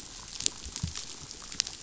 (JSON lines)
{"label": "biophony, pulse", "recorder": "SoundTrap 500"}